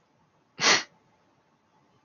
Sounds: Sneeze